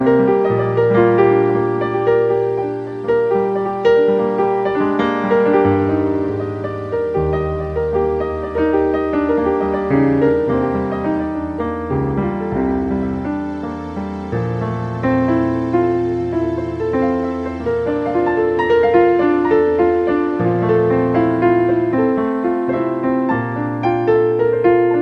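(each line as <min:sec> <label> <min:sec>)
0:00.0 Two pianos playing smooth, melodic, and layered music with intermittent vocal effects in a romantic, cinematic style. 0:25.0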